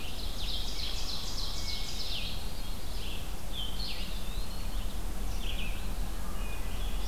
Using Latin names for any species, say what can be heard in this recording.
Seiurus aurocapilla, Vireo solitarius, Vireo olivaceus, Catharus guttatus, Contopus virens